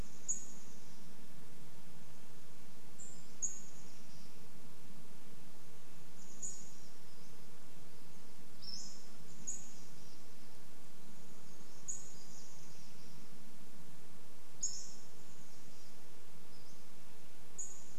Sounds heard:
insect buzz
Pacific-slope Flycatcher call
Chestnut-backed Chickadee call

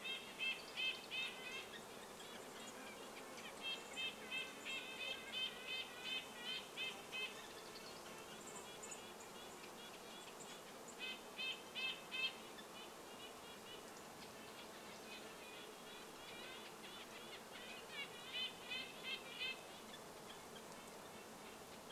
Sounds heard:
Red-breasted Nuthatch song
insect buzz
Dark-eyed Junco call
Red-breasted Nuthatch call

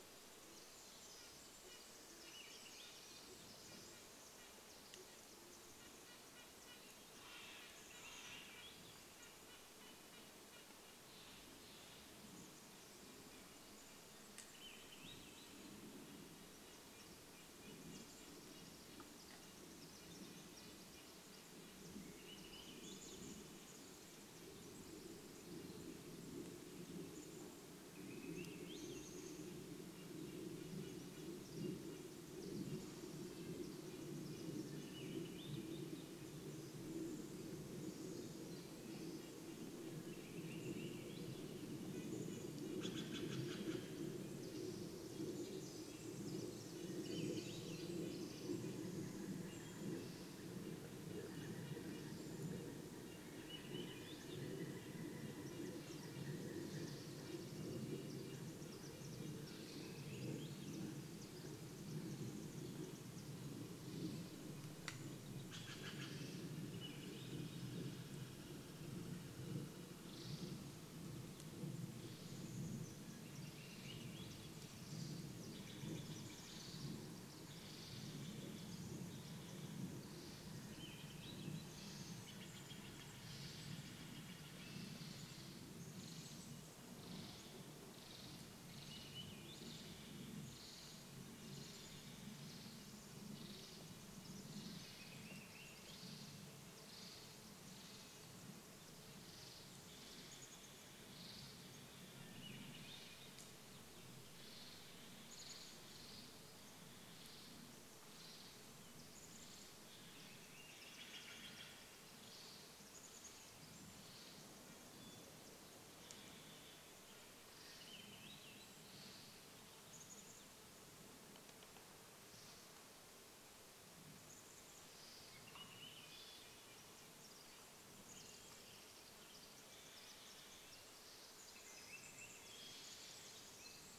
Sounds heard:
Pacific Wren song
Steller's Jay call
unidentified sound
Swainson's Thrush song
Red-breasted Nuthatch song
Douglas squirrel rattle
Brown Creeper call
Varied Thrush song
woodpecker drumming
airplane
Hermit Thrush song
unidentified bird chip note
Band-tailed Pigeon song
Pileated Woodpecker call
Band-tailed Pigeon call
Chestnut-backed Chickadee call
Swainson's Thrush call

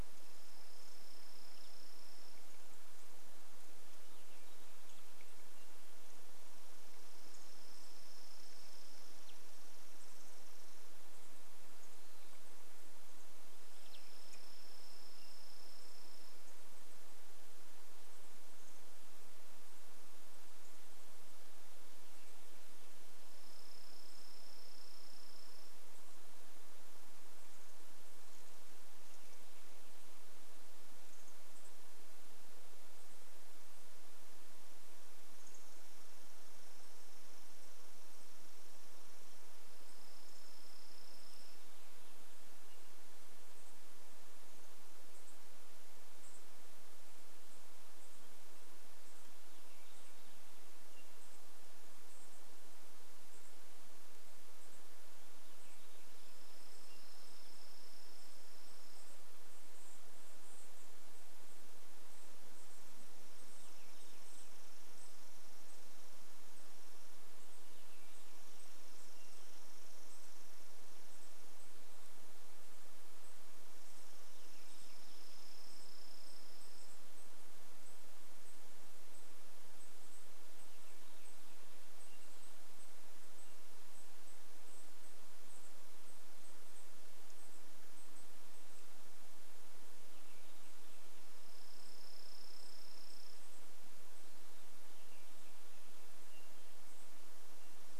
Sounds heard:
unidentified sound
unidentified bird chip note
Chipping Sparrow song

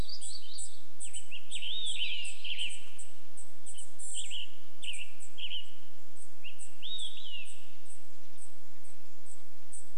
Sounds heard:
warbler song
Red-breasted Nuthatch song
Western Tanager song
Olive-sided Flycatcher song
unidentified bird chip note

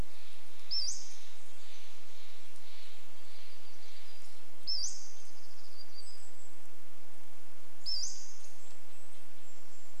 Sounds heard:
warbler song
Pacific-slope Flycatcher call
Red-breasted Nuthatch song
Brown Creeper call
Steller's Jay call
unidentified bird chip note

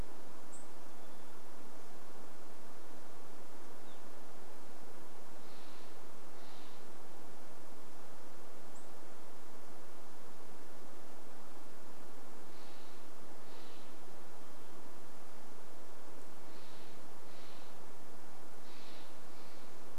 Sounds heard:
Steller's Jay call
Evening Grosbeak call
Hermit Thrush song
unidentified bird chip note

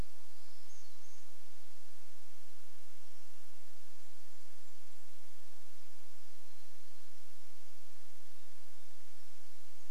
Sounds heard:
Golden-crowned Kinglet song
Varied Thrush song
warbler song

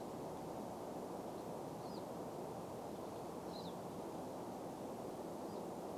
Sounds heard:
Pine Siskin call

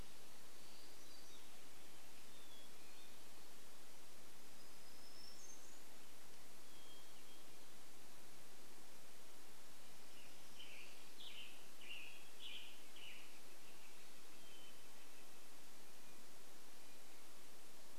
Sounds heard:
Hermit Warbler song
Hermit Thrush song
Black-throated Gray Warbler song
Red-breasted Nuthatch song
Northern Flicker call
Western Tanager song

